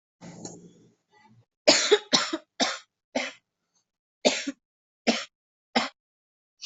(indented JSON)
{
  "expert_labels": [
    {
      "quality": "ok",
      "cough_type": "dry",
      "dyspnea": false,
      "wheezing": false,
      "stridor": false,
      "choking": false,
      "congestion": false,
      "nothing": true,
      "diagnosis": "lower respiratory tract infection",
      "severity": "mild"
    }
  ],
  "age": 24,
  "gender": "female",
  "respiratory_condition": true,
  "fever_muscle_pain": false,
  "status": "symptomatic"
}